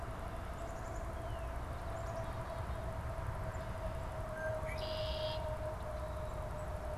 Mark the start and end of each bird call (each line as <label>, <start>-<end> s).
Black-capped Chickadee (Poecile atricapillus), 0.3-2.8 s
Northern Cardinal (Cardinalis cardinalis), 1.0-1.5 s
Red-winged Blackbird (Agelaius phoeniceus), 4.1-5.6 s